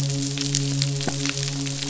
{"label": "biophony, midshipman", "recorder": "SoundTrap 500"}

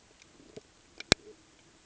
{"label": "ambient", "recorder": "HydroMoth"}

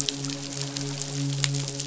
{"label": "biophony, midshipman", "recorder": "SoundTrap 500"}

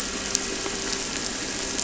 {"label": "anthrophony, boat engine", "recorder": "SoundTrap 300"}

